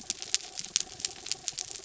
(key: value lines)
label: anthrophony, mechanical
recorder: SoundTrap 300